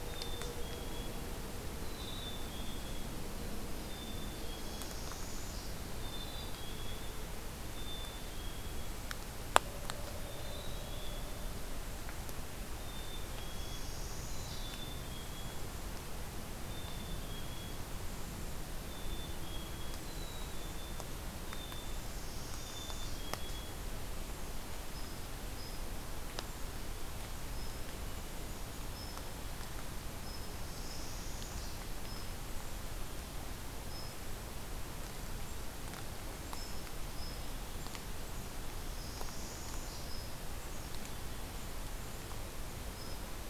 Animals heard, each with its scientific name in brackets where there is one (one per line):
Northern Parula (Setophaga americana)
Black-capped Chickadee (Poecile atricapillus)
unidentified call